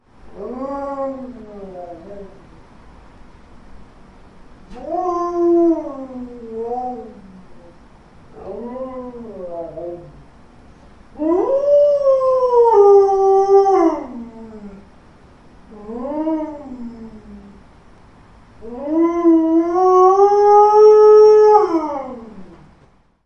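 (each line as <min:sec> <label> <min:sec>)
0:00.0 A wolf whines quietly. 0:03.0
0:04.5 A wolf is whining. 0:07.4
0:08.2 A dog whines quietly. 0:10.5
0:11.1 A dog howls loudly. 0:14.7
0:15.4 A dog howls quietly. 0:17.3
0:18.4 A dog howls, starting quietly and then getting louder. 0:22.4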